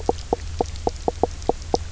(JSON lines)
{"label": "biophony, knock croak", "recorder": "SoundTrap 300"}